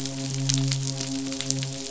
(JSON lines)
{"label": "biophony, midshipman", "recorder": "SoundTrap 500"}